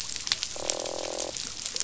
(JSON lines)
{"label": "biophony, croak", "recorder": "SoundTrap 500"}